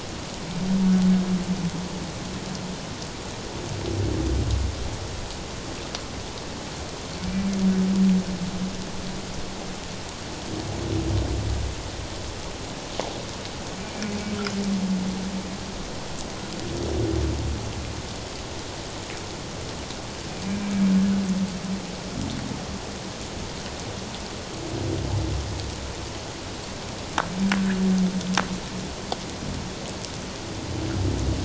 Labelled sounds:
7.3	7.5	humpback whale, 2.3 to 2.4 kHz
13.8	14.2	humpback whale, 2.2 to 2.5 kHz

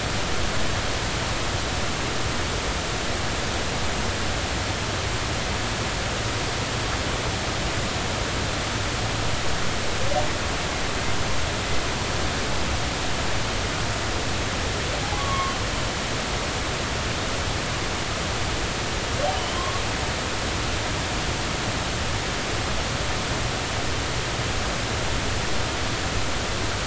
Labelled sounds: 15.1	15.6	humpback whale, 0.96 to 1.2 kHz
19.3	19.8	humpback whale, 0.99 to 3.3 kHz

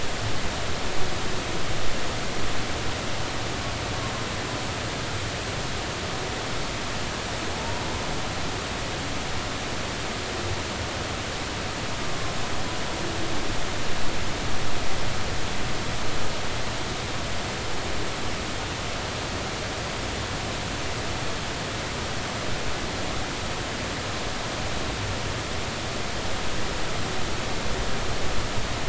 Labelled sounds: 7.6	7.8	humpback whale, 0.86 to 1.0 kHz

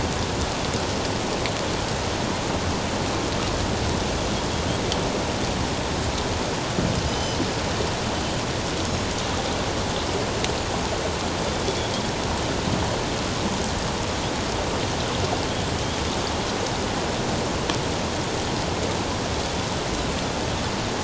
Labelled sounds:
7.1	7.4	Pacific white-sided dolphin, 2.9 to 6.2 kHz

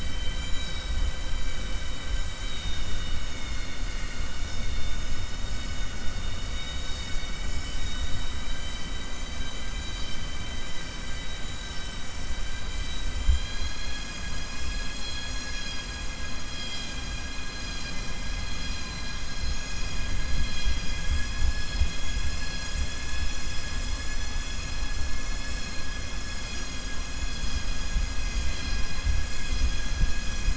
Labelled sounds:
12.5	13.1	vessel noise, 1.6 to 4.8 kHz

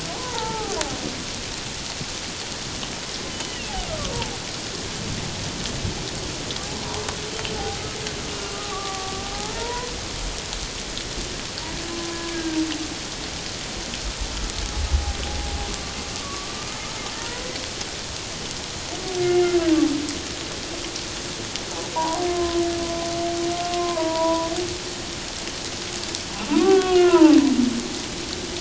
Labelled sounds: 0.1	0.8	humpback whale, 0.78 to 1.4 kHz
3.3	4.1	humpback whale, 1.1 to 3.1 kHz
8.4	9.9	humpback whale, 0.78 to 1.3 kHz
11.9	12.6	humpback whale, 0.97 to 1.7 kHz
15.3	16.5	humpback whale, 0.78 to 1.2 kHz
19.2	19.6	humpback whale, 2.0 to 2.2 kHz
21.9	22.6	humpback whale, 0.78 to 1.1 kHz
23.7	24.5	humpback whale, 0.88 to 1.1 kHz
26.5	27.4	humpback whale, 0.78 to 2.9 kHz

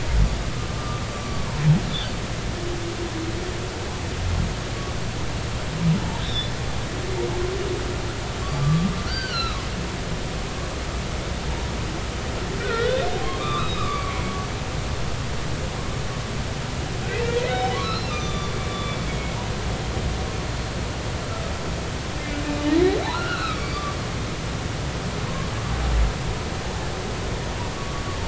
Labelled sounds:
1.2	1.6	humpback whale, 0.90 to 1.2 kHz
6.2	6.5	humpback whale, 3.4 to 3.9 kHz
8.6	9.6	humpback whale, 0.99 to 4.8 kHz
12.6	14.2	humpback whale, 1.0 to 3.9 kHz
17.1	17.3	humpback whale, 2.2 to 2.8 kHz
17.8	19.0	humpback whale, 1.1 to 6.1 kHz
23.0	23.6	humpback whale, 1.2 to 4.2 kHz
27.7	28.0	humpback whale, 1.1 to 1.2 kHz

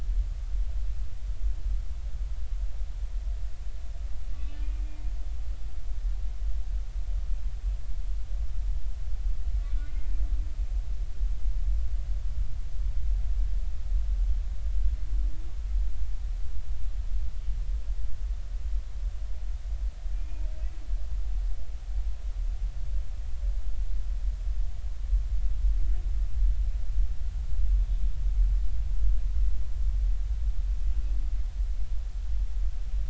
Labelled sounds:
4.5	4.7	humpback whale, 2.8 to 3.1 kHz
9.7	10.0	humpback whale, 2.2 to 2.5 kHz
20.1	20.5	humpback whale, 2.3 to 2.6 kHz

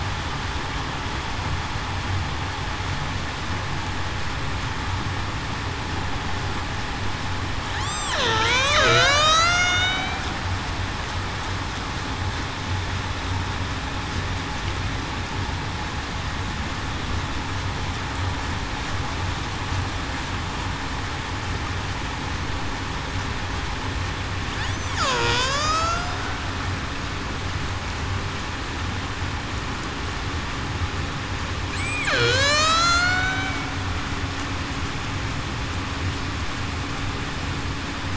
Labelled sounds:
7.8	9.8	killer whale, Bigg's (transient), 0.42 to 8.0 kHz
24.6	26.1	killer whale, Bigg's (transient), 1.4 to 8.0 kHz
31.8	33.7	killer whale, Bigg's (transient), 1.1 to 8.0 kHz

